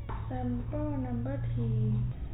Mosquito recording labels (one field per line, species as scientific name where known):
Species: no mosquito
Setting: cup